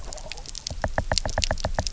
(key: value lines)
label: biophony, knock
recorder: SoundTrap 300